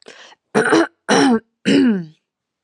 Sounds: Throat clearing